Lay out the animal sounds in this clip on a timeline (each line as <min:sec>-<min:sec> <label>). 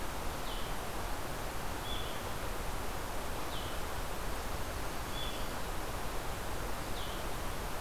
0:00.0-0:07.8 Blue-headed Vireo (Vireo solitarius)
0:04.3-0:05.8 Blackburnian Warbler (Setophaga fusca)